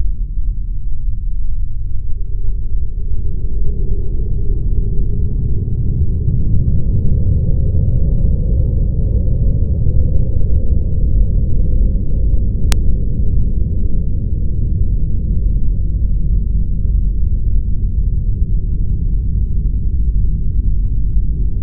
Are people talking to each other?
no